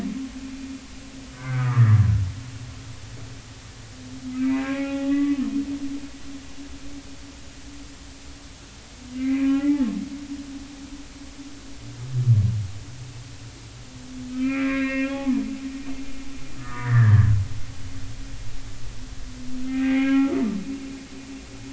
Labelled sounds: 1.3	2.0	humpback whale, 1.1 to 2.1 kHz
4.3	5.4	humpback whale, 0.80 to 2.8 kHz
9.1	9.8	humpback whale, 1.3 to 2.6 kHz
14.3	15.5	humpback whale, 0.80 to 3.4 kHz
16.6	17.3	humpback whale, 1.1 to 2.0 kHz
19.6	21.2	humpback whale, 0.80 to 3.3 kHz

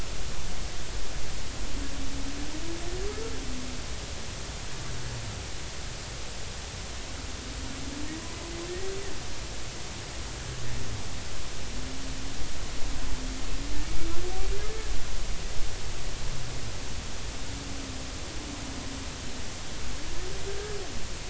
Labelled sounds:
20.5	20.8	humpback whale, 1.5 to 1.8 kHz

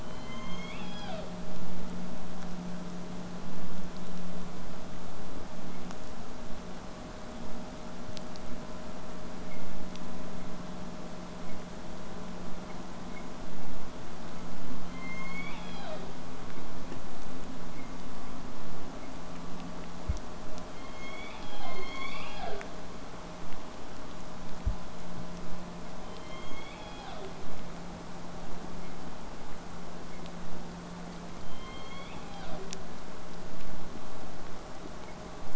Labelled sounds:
0.0	1.4	killer whale, southern resident, J pod, call S01, 0.38 to 7.0 kHz
14.7	16.2	killer whale, southern resident, J pod, call S01, 0.38 to 6.8 kHz
20.7	22.7	killer whale, southern resident, J pod, call S01, 0.25 to 7.2 kHz
26.1	27.4	killer whale, southern resident, J pod, call S01, 0.25 to 6.9 kHz
31.4	32.9	killer whale, southern resident, J pod, call S01, 0.12 to 5.2 kHz

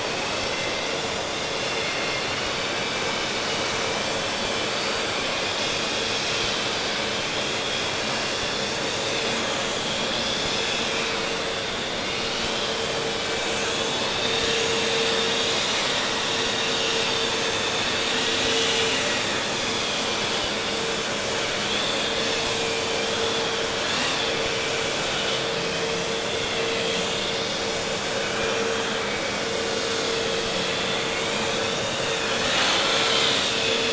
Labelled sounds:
0.0	33.8	vessel noise, 1.2 to 6.5 kHz

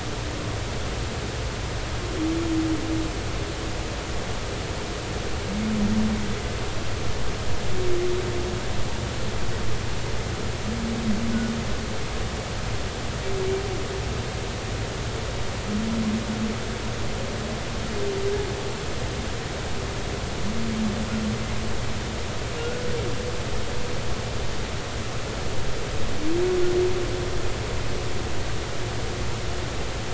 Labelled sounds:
22.6	22.9	humpback whale, 1.4 to 1.5 kHz

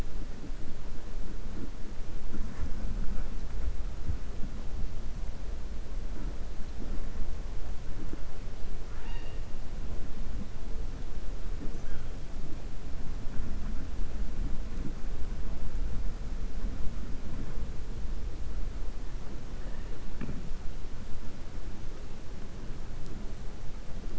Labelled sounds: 8.8	9.4	killer whale, 0.87 to 5.5 kHz

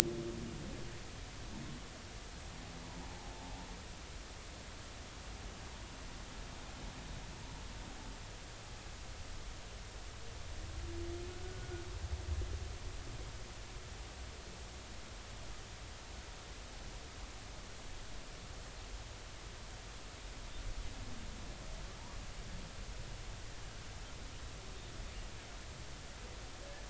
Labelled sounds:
11.4	11.7	humpback whale, 1.4 to 1.5 kHz

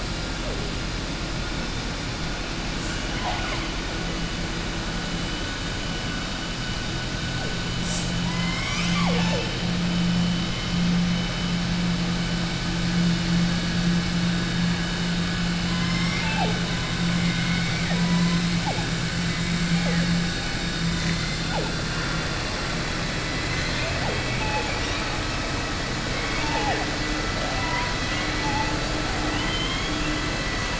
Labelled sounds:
29.2	30.0	killer whale, southern resident, 2.1 to 4.1 kHz

